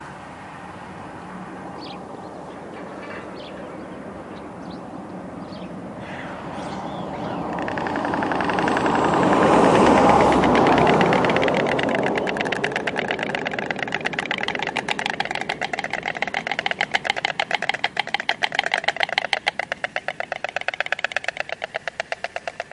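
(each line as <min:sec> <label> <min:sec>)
0:00.0 A steady hum of traffic. 0:16.7
0:01.9 A bird chirps calmly in the distance. 0:09.0
0:07.7 Storks are clapping their bills repeatedly. 0:22.7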